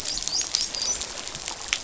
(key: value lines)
label: biophony, dolphin
recorder: SoundTrap 500